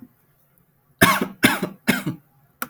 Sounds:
Cough